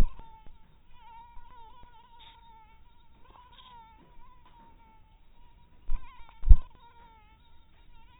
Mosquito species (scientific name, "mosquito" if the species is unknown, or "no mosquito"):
mosquito